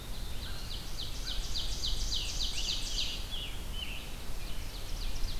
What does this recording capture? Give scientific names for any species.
Setophaga caerulescens, Corvus brachyrhynchos, Seiurus aurocapilla, Vireo olivaceus, Piranga olivacea